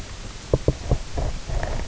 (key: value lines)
label: biophony, knock
recorder: SoundTrap 300